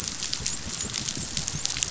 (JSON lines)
{"label": "biophony, dolphin", "recorder": "SoundTrap 500"}